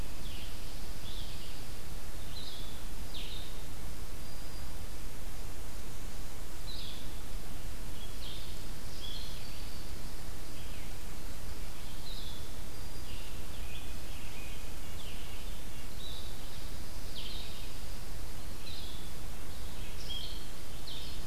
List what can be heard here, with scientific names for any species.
Vireo solitarius, Vireo olivaceus, Setophaga virens, Seiurus aurocapilla, Sitta canadensis